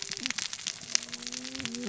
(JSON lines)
{"label": "biophony, cascading saw", "recorder": "SoundTrap 600 or HydroMoth"}